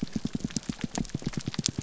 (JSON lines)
{"label": "biophony, pulse", "recorder": "SoundTrap 300"}